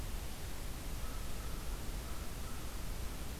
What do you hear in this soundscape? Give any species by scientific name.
Corvus brachyrhynchos